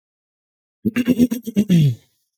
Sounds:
Throat clearing